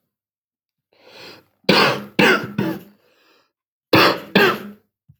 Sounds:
Cough